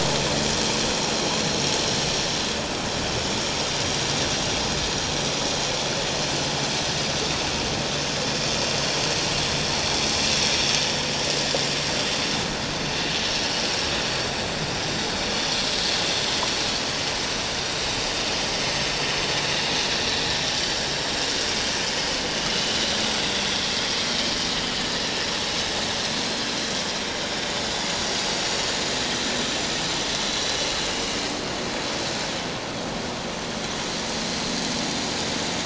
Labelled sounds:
15.4	15.6	vessel noise, 5.8 to 5.9 kHz
26.2	26.5	vessel noise, 4.1 to 4.3 kHz
28.4	28.7	vessel noise, 4.3 to 4.5 kHz

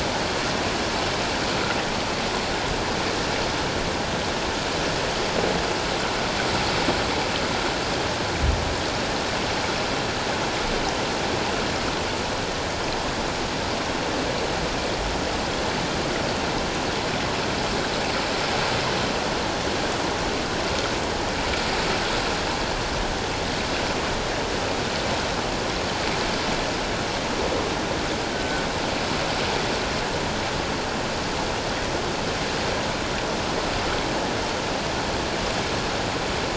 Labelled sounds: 28.3	28.6	killer whale, 1.4 to 1.6 kHz

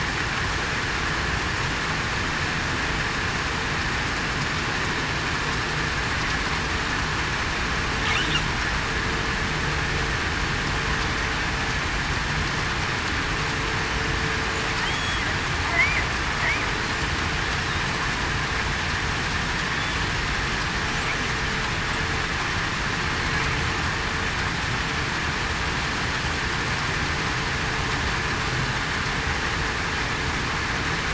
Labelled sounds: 14.9	15.2	killer whale, southern resident, 3.2 to 3.4 kHz

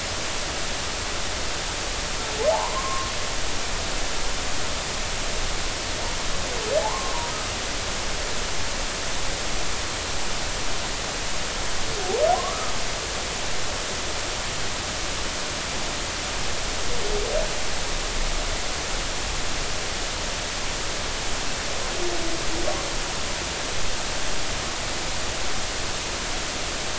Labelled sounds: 2.5	3.1	humpback whale, 0.80 to 1.2 kHz
6.8	7.1	humpback whale, 0.80 to 1.2 kHz
12.3	12.7	humpback whale, 0.96 to 1.3 kHz

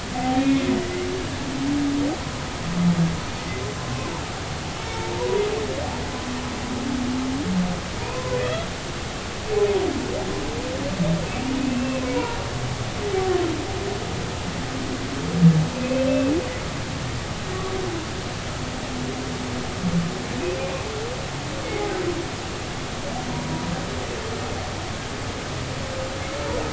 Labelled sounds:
0.1	1.1	humpback whale, 0.80 to 3.9 kHz
3.4	4.1	humpback whale, 0.99 to 2.1 kHz
5.1	5.4	humpback whale, 0.90 to 1.0 kHz
8.0	8.6	humpback whale, 0.90 to 2.7 kHz
11.6	12.4	humpback whale, 0.90 to 2.8 kHz
15.7	16.3	humpback whale, 2.5 to 2.7 kHz
23.5	23.7	humpback whale, 0.93 to 1.0 kHz

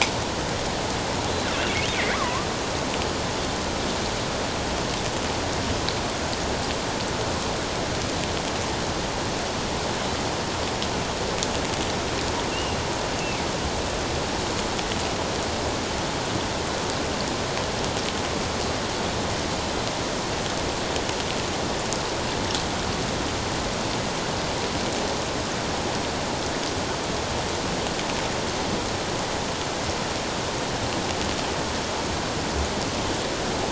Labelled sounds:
2.1	2.5	killer whale, offshore, 0.94 to 1.3 kHz
12.5	12.8	killer whale, offshore, 2.6 to 2.9 kHz

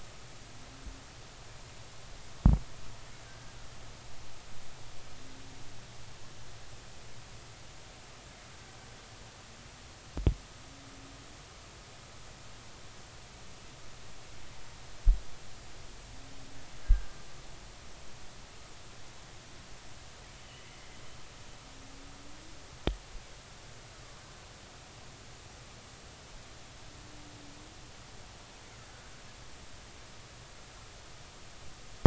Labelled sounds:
16.8	17.1	killer whale, Bigg's (transient), 1.5 to 1.7 kHz

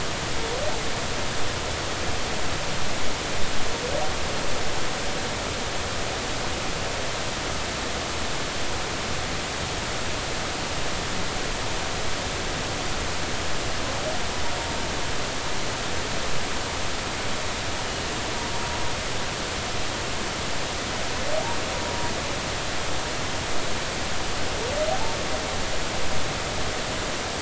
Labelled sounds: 24.9	25.2	humpback whale, 0.80 to 0.96 kHz

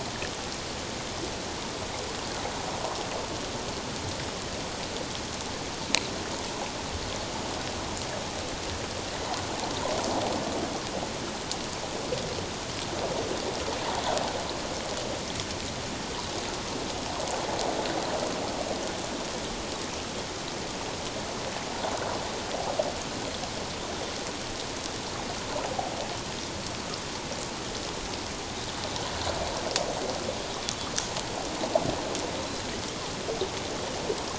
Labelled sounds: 32.4	32.7	Pacific white-sided dolphin, 3.8 to 4.1 kHz

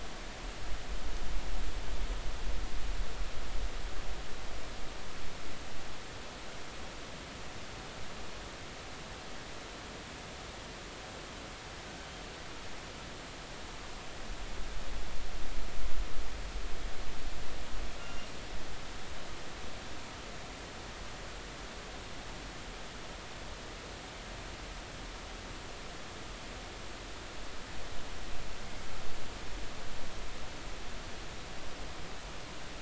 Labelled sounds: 18.0	18.3	killer whale, northern resident, 2.7 to 2.9 kHz

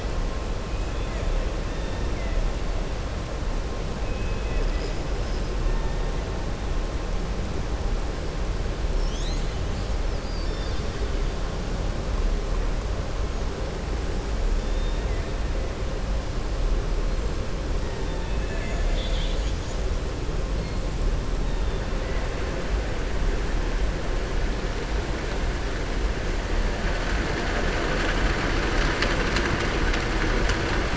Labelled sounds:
1.7	2.3	killer whale, southern resident, 1.9 to 3.7 kHz
4.0	4.9	killer whale, southern resident, 1.7 to 3.5 kHz
10.0	11.1	killer whale, southern resident, 2.9 to 5.4 kHz
18.1	19.8	killer whale, southern resident, 1.7 to 7.1 kHz

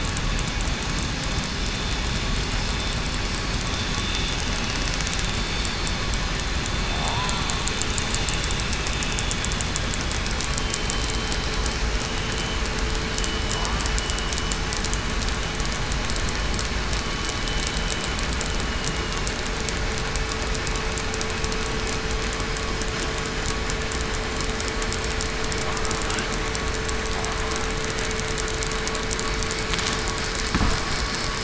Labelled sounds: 6.9	7.4	killer whale, southern resident, 0.66 to 1.0 kHz
10.9	11.3	vessel noise, 3.0 to 3.1 kHz

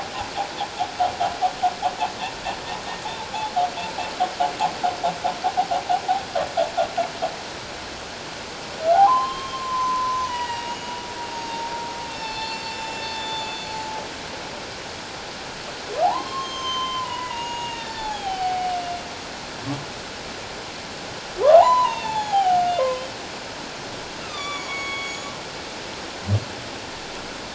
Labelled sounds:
8.8	10.9	humpback whale, 0.78 to 6.8 kHz
11.3	13.8	humpback whale, 0.81 to 7.2 kHz
16.0	18.7	humpback whale, 0.78 to 6.7 kHz
21.4	23.0	humpback whale, 0.78 to 4.1 kHz
24.2	25.3	humpback whale, 1.0 to 6.8 kHz

